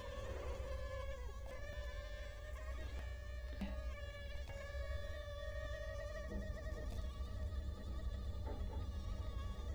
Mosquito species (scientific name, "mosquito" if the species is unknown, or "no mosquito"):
Culex quinquefasciatus